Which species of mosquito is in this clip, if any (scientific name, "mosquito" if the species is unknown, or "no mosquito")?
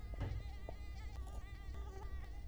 Culex quinquefasciatus